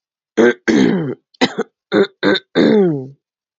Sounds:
Throat clearing